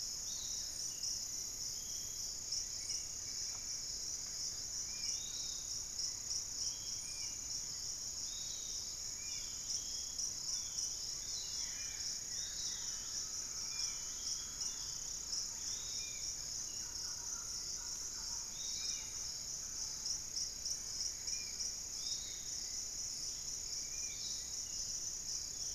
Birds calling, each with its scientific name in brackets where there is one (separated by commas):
Barred Forest-Falcon (Micrastur ruficollis), Spot-winged Antshrike (Pygiptila stellaris), unidentified bird, Thrush-like Wren (Campylorhynchus turdinus), Piratic Flycatcher (Legatus leucophaius), Buff-throated Woodcreeper (Xiphorhynchus guttatus), Undulated Tinamou (Crypturellus undulatus), Long-winged Antwren (Myrmotherula longipennis)